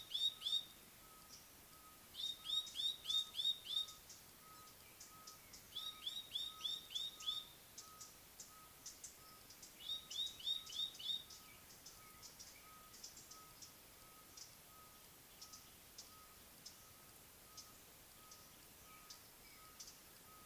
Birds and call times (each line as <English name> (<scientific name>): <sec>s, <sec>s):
Black-collared Apalis (Oreolais pulcher): 6.5s
Collared Sunbird (Hedydipna collaris): 8.0s, 16.6s